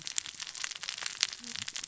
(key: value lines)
label: biophony, cascading saw
recorder: SoundTrap 600 or HydroMoth